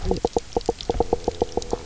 {"label": "biophony, knock croak", "recorder": "SoundTrap 300"}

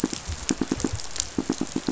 {"label": "biophony, pulse", "recorder": "SoundTrap 500"}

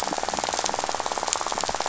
{"label": "biophony, rattle", "recorder": "SoundTrap 500"}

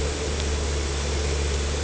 {"label": "anthrophony, boat engine", "recorder": "HydroMoth"}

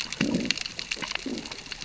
{"label": "biophony, growl", "recorder": "SoundTrap 600 or HydroMoth"}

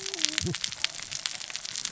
{"label": "biophony, cascading saw", "recorder": "SoundTrap 600 or HydroMoth"}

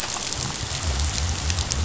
{"label": "biophony", "recorder": "SoundTrap 500"}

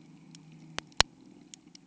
{"label": "anthrophony, boat engine", "recorder": "HydroMoth"}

